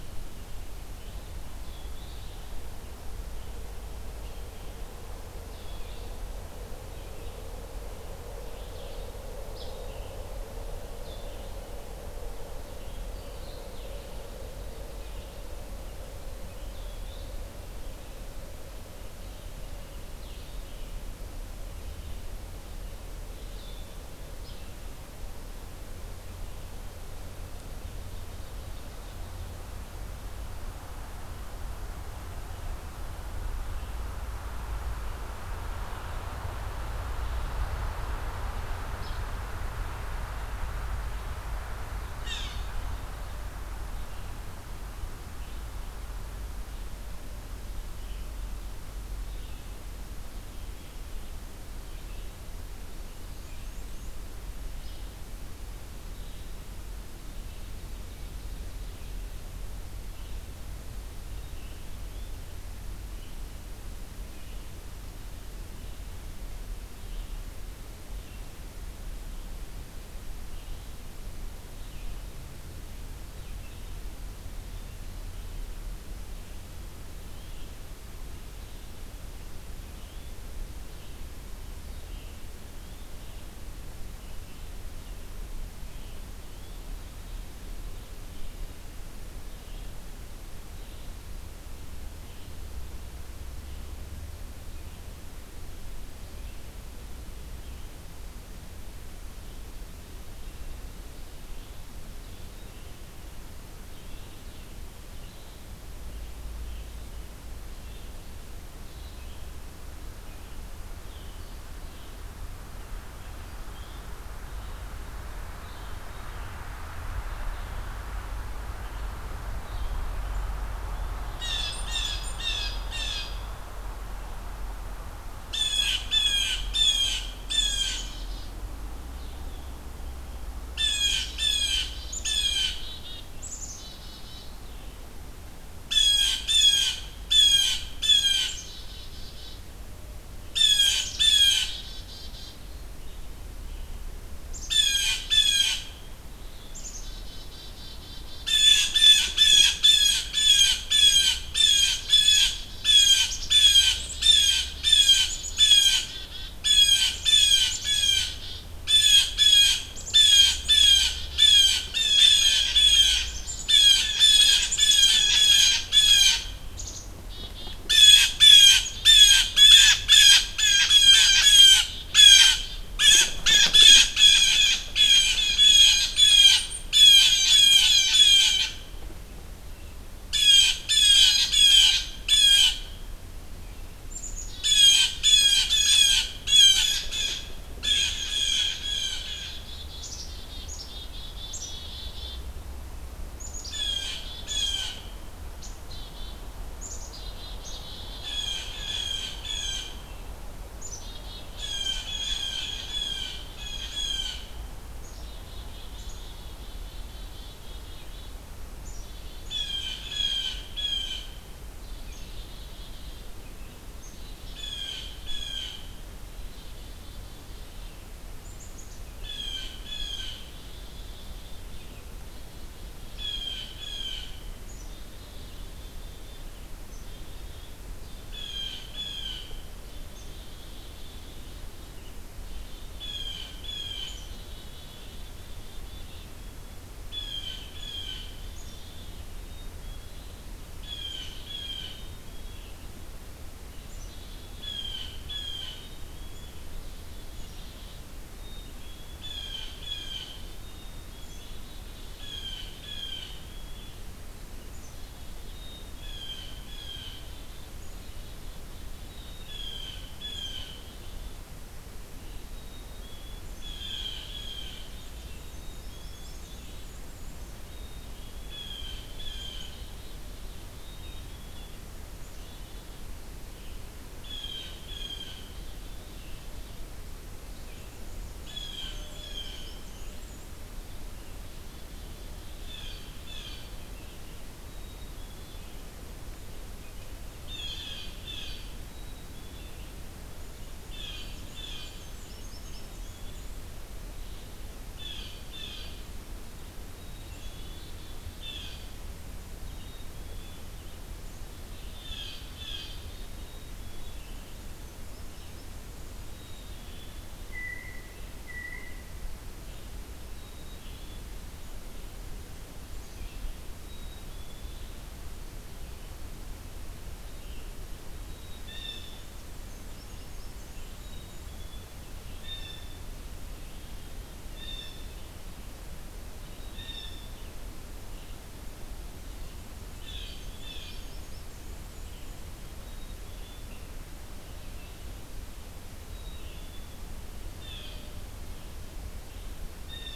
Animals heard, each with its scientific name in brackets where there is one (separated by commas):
Black-capped Chickadee (Poecile atricapillus), Downy Woodpecker (Dryobates pubescens), Cape May Warbler (Setophaga tigrina), Black-and-white Warbler (Mniotilta varia), Yellow-bellied Flycatcher (Empidonax flaviventris), Blue Jay (Cyanocitta cristata), Blue-headed Vireo (Vireo solitarius)